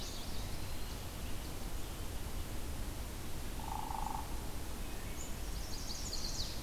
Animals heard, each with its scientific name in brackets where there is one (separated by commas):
Black-throated Blue Warbler (Setophaga caerulescens), Chestnut-sided Warbler (Setophaga pensylvanica), Hairy Woodpecker (Dryobates villosus)